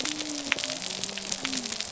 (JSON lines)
{"label": "biophony", "recorder": "SoundTrap 300"}